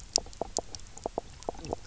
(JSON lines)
{"label": "biophony, knock croak", "recorder": "SoundTrap 300"}